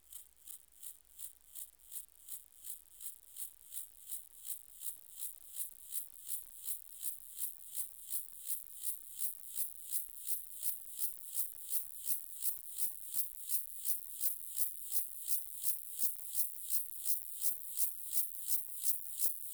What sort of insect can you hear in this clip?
orthopteran